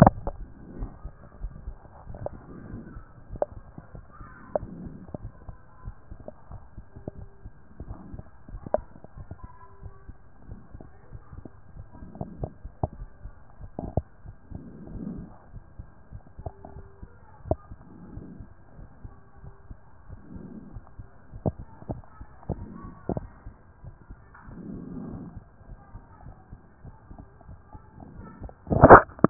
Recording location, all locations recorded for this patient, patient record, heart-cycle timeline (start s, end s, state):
aortic valve (AV)
aortic valve (AV)+pulmonary valve (PV)+tricuspid valve (TV)+mitral valve (MV)
#Age: Child
#Sex: Male
#Height: 124.0 cm
#Weight: 35.8 kg
#Pregnancy status: False
#Murmur: Absent
#Murmur locations: nan
#Most audible location: nan
#Systolic murmur timing: nan
#Systolic murmur shape: nan
#Systolic murmur grading: nan
#Systolic murmur pitch: nan
#Systolic murmur quality: nan
#Diastolic murmur timing: nan
#Diastolic murmur shape: nan
#Diastolic murmur grading: nan
#Diastolic murmur pitch: nan
#Diastolic murmur quality: nan
#Outcome: Abnormal
#Campaign: 2014 screening campaign
0.00	0.20	S1
0.20	0.24	systole
0.24	0.40	S2
0.40	0.74	diastole
0.74	0.92	S1
0.92	1.00	systole
1.00	1.14	S2
1.14	1.42	diastole
1.42	1.54	S1
1.54	1.60	systole
1.60	1.76	S2
1.76	2.08	diastole
2.08	2.22	S1
2.22	2.32	systole
2.32	2.42	S2
2.42	2.66	diastole
2.66	2.84	S1
2.84	2.92	systole
2.92	3.04	S2
3.04	3.30	diastole
3.30	3.40	S1
3.40	3.50	systole
3.50	3.64	S2
3.64	3.92	diastole
3.92	4.04	S1
4.04	4.16	systole
4.16	4.28	S2
4.28	4.56	diastole
4.56	4.72	S1
4.72	4.80	systole
4.80	4.96	S2
4.96	5.22	diastole
5.22	5.32	S1
5.32	5.46	systole
5.46	5.58	S2
5.58	5.86	diastole
5.86	5.96	S1
5.96	6.10	systole
6.10	6.20	S2
6.20	6.50	diastole
6.50	6.62	S1
6.62	6.74	systole
6.74	6.84	S2
6.84	7.16	diastole
7.16	7.30	S1
7.30	7.44	systole
7.44	7.52	S2
7.52	7.80	diastole
7.80	7.98	S1
7.98	8.10	systole
8.10	8.24	S2
8.24	8.52	diastole
8.52	8.64	S1
8.64	8.72	systole
8.72	8.84	S2
8.84	9.16	diastole
9.16	9.28	S1
9.28	9.40	systole
9.40	9.50	S2
9.50	9.82	diastole
9.82	9.94	S1
9.94	10.04	systole
10.04	10.14	S2
10.14	10.48	diastole
10.48	10.62	S1
10.62	10.74	systole
10.74	10.84	S2
10.84	11.14	diastole
11.14	11.24	S1
11.24	11.34	systole
11.34	11.44	S2
11.44	11.76	diastole
11.76	11.88	S1
11.88	12.00	systole
12.00	12.10	S2
12.10	12.36	diastole
12.36	12.50	S1
12.50	12.60	systole
12.60	12.70	S2
12.70	12.96	diastole
12.96	13.10	S1
13.10	13.24	systole
13.24	13.34	S2
13.34	13.60	diastole
13.60	13.72	S1
13.72	13.78	systole
13.78	13.92	S2
13.92	14.24	diastole
14.24	14.36	S1
14.36	14.52	systole
14.52	14.66	S2
14.66	14.98	diastole
14.98	15.16	S1
15.16	15.20	systole
15.20	15.30	S2
15.30	15.54	diastole
15.54	15.66	S1
15.66	15.80	systole
15.80	15.86	S2
15.86	16.14	diastole
16.14	16.24	S1
16.24	16.34	systole
16.34	16.44	S2
16.44	16.74	diastole
16.74	16.88	S1
16.88	17.02	systole
17.02	17.12	S2
17.12	17.44	diastole
17.44	17.58	S1
17.58	17.70	systole
17.70	17.78	S2
17.78	18.12	diastole
18.12	18.28	S1
18.28	18.38	systole
18.38	18.48	S2
18.48	18.78	diastole
18.78	18.88	S1
18.88	19.00	systole
19.00	19.14	S2
19.14	19.44	diastole
19.44	19.54	S1
19.54	19.66	systole
19.66	19.76	S2
19.76	20.10	diastole
20.10	20.22	S1
20.22	20.34	systole
20.34	20.50	S2
20.50	20.74	diastole
20.74	20.84	S1
20.84	20.96	systole
20.96	21.06	S2
21.06	21.34	diastole
21.34	21.42	S1
21.42	21.44	systole
21.44	21.56	S2
21.56	21.88	diastole
21.88	22.02	S1
22.02	22.10	systole
22.10	22.18	S2
22.18	22.46	diastole
22.46	22.64	S1
22.64	22.70	systole
22.70	22.82	S2
22.82	23.08	diastole
23.08	23.26	S1
23.26	23.42	systole
23.42	23.54	S2
23.54	23.84	diastole
23.84	23.94	S1
23.94	24.06	systole
24.06	24.18	S2
24.18	24.48	diastole
24.48	24.64	S1
24.64	24.66	systole
24.66	24.78	S2
24.78	25.02	diastole
25.02	25.20	S1
25.20	25.34	systole
25.34	25.44	S2
25.44	25.70	diastole
25.70	25.80	S1
25.80	25.92	systole
25.92	26.02	S2
26.02	26.26	diastole
26.26	26.36	S1
26.36	26.52	systole
26.52	26.60	S2
26.60	26.86	diastole
26.86	26.96	S1
26.96	27.08	systole
27.08	27.18	S2
27.18	27.48	diastole
27.48	27.60	S1
27.60	27.72	systole
27.72	27.82	S2
27.82	28.12	diastole
28.12	28.28	S1
28.28	28.40	systole
28.40	28.52	S2
28.52	28.76	diastole
28.76	28.94	S1
28.94	29.16	systole
29.16	29.30	S2